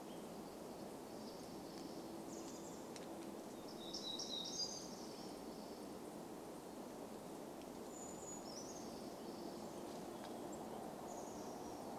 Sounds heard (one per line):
Brown Creeper song
unidentified sound
warbler song
Chestnut-backed Chickadee call